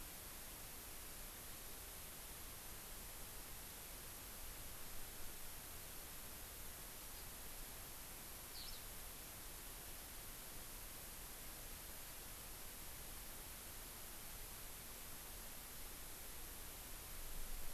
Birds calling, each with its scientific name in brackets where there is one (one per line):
Eurasian Skylark (Alauda arvensis)